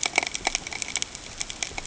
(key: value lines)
label: ambient
recorder: HydroMoth